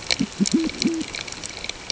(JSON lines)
{"label": "ambient", "recorder": "HydroMoth"}